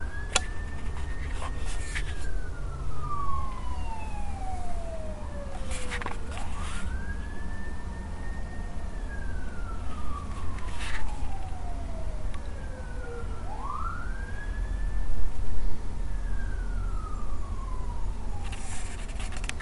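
Ambulance sirens. 0:00.0 - 0:01.1
A brief clicking sound. 0:00.3 - 0:00.4
The sound of a book page being turned. 0:01.2 - 0:02.5
The siren of an ambulance is loud. 0:02.6 - 0:05.5
A book page is being flipped. 0:05.6 - 0:06.6
Sirens sounding continuously. 0:06.7 - 0:15.0
The sound of a page flipping. 0:10.6 - 0:11.4
A microphone is being touched. 0:15.1 - 0:15.9
Ambulance sirens. 0:16.0 - 0:19.6
A page is being flipped. 0:19.3 - 0:19.6

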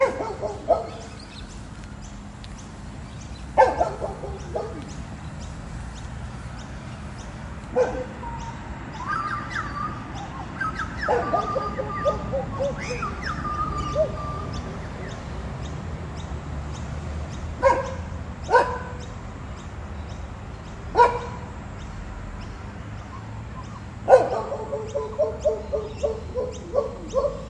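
A dog barks. 0:00.0 - 0:01.1
Birds chirping softly and rhythmically. 0:00.0 - 0:27.5
White noise in the background. 0:00.0 - 0:27.5
A dog barks, gradually becoming quieter. 0:03.5 - 0:05.4
A dog barks once. 0:07.6 - 0:08.0
A bird sings melodically. 0:08.1 - 0:14.7
A dog barks. 0:17.5 - 0:18.8
A dog barks shortly once. 0:20.9 - 0:21.4
A dog barks quickly and repeatedly. 0:24.0 - 0:27.5

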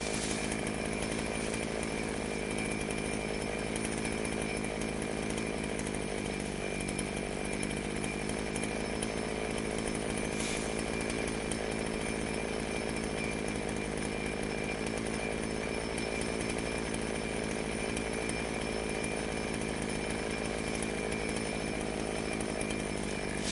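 A chainsaw produces a constant buzzing motor sound. 0:00.0 - 0:23.5

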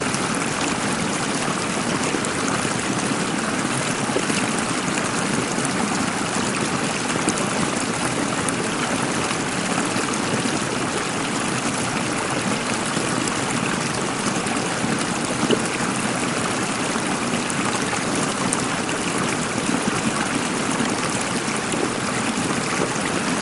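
Rushing water. 0:00.0 - 0:23.4

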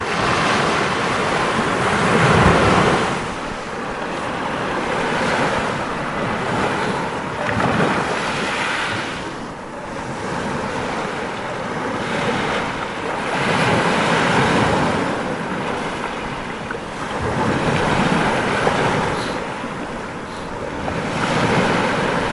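A water wave is traveling. 0:00.0 - 0:01.8
Water occasionally crashes on the beach and flows back and forth. 0:00.0 - 0:22.3
A wave crashes onto the beach. 0:01.8 - 0:03.3
A water wave retreating. 0:03.4 - 0:05.2
A water bubble pops. 0:07.2 - 0:07.9
Multiple waves crash onto the beach. 0:13.2 - 0:15.5
Multiple waves crash onto the beach. 0:17.1 - 0:19.5
A water wave crashes onto the beach. 0:20.9 - 0:22.3

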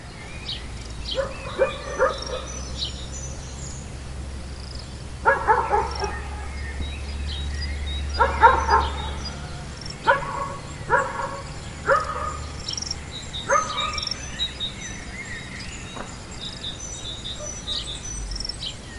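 Birds singing softly and continuously in a forest. 0:00.0 - 0:19.0
A dog barks repeatedly and progressively in a forest. 0:01.1 - 0:02.2
A dog barks continuously in a forest. 0:05.2 - 0:06.1
A dog barks continuously in a forest. 0:08.1 - 0:09.0
A dog barks repeatedly in rhythm in a forest. 0:10.0 - 0:12.3
A dog barks loudly once. 0:13.4 - 0:13.8

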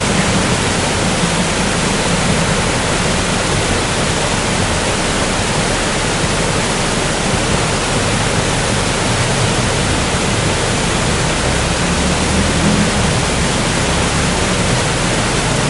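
Very strong indecipherable noise, possibly from a communication system. 0:00.0 - 0:15.7

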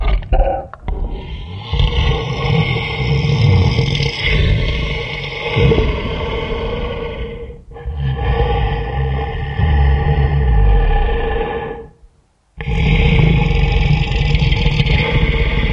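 Heavy, continuous snoring with deep, breathy tones. 0:00.0 - 0:15.7

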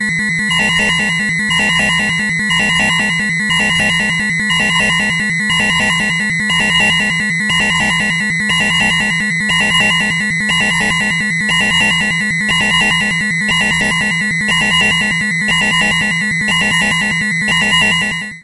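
A rhythmic beeping sound repeats. 0:00.0 - 0:18.4
An emergency alarm beeps loudly and repeatedly. 0:00.0 - 0:18.4

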